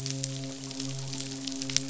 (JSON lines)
{"label": "biophony, midshipman", "recorder": "SoundTrap 500"}